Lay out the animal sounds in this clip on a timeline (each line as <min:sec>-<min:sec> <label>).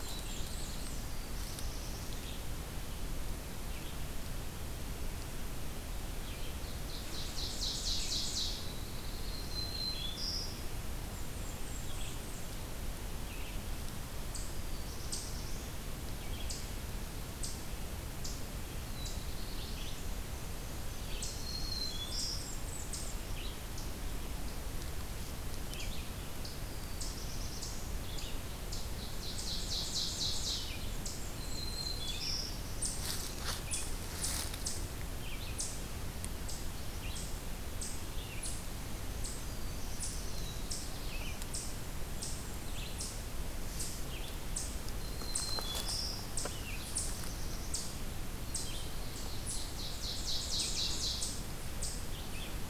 0:00.0-0:01.2 Blackburnian Warbler (Setophaga fusca)
0:00.0-0:02.8 Black-throated Blue Warbler (Setophaga caerulescens)
0:00.0-0:21.4 Red-eyed Vireo (Vireo olivaceus)
0:06.1-0:08.8 Ovenbird (Seiurus aurocapilla)
0:08.3-0:09.8 Black-throated Blue Warbler (Setophaga caerulescens)
0:09.1-0:10.7 Black-throated Green Warbler (Setophaga virens)
0:10.8-0:12.8 Blackburnian Warbler (Setophaga fusca)
0:14.1-0:52.1 Eastern Chipmunk (Tamias striatus)
0:14.4-0:15.9 Black-throated Blue Warbler (Setophaga caerulescens)
0:18.7-0:20.2 Black-throated Blue Warbler (Setophaga caerulescens)
0:19.8-0:21.2 Yellow-rumped Warbler (Setophaga coronata)
0:20.8-0:22.2 Black-throated Blue Warbler (Setophaga caerulescens)
0:21.1-0:22.7 Black-throated Green Warbler (Setophaga virens)
0:21.9-0:23.5 Blackburnian Warbler (Setophaga fusca)
0:23.2-0:52.7 Red-eyed Vireo (Vireo olivaceus)
0:26.3-0:28.1 Black-throated Blue Warbler (Setophaga caerulescens)
0:28.8-0:30.9 Ovenbird (Seiurus aurocapilla)
0:30.9-0:32.3 Blackburnian Warbler (Setophaga fusca)
0:31.3-0:32.8 Black-throated Green Warbler (Setophaga virens)
0:39.2-0:41.8 Black-throated Blue Warbler (Setophaga caerulescens)
0:41.8-0:43.4 Blackburnian Warbler (Setophaga fusca)
0:44.9-0:46.4 Black-throated Green Warbler (Setophaga virens)
0:46.5-0:47.7 Black-throated Blue Warbler (Setophaga caerulescens)
0:48.5-0:49.7 Black-throated Blue Warbler (Setophaga caerulescens)
0:48.9-0:51.5 Ovenbird (Seiurus aurocapilla)